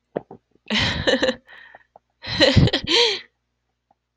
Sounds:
Laughter